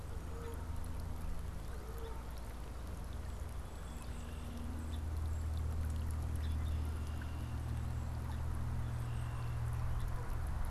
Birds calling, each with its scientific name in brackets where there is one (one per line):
Red-winged Blackbird (Agelaius phoeniceus)
Canada Goose (Branta canadensis)
Song Sparrow (Melospiza melodia)